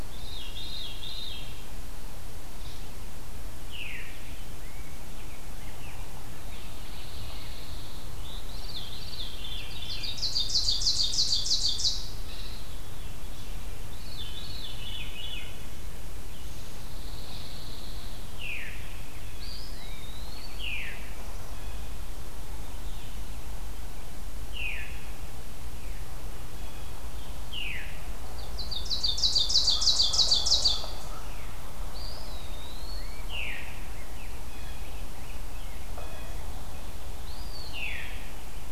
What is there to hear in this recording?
Veery, Rose-breasted Grosbeak, Pine Warbler, Ovenbird, Blue Jay, Eastern Wood-Pewee